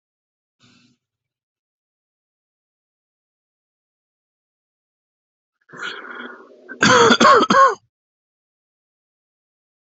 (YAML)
expert_labels:
- quality: ok
  cough_type: dry
  dyspnea: false
  wheezing: false
  stridor: false
  choking: false
  congestion: false
  nothing: true
  diagnosis: lower respiratory tract infection
  severity: mild
age: 40
gender: male
respiratory_condition: false
fever_muscle_pain: false
status: healthy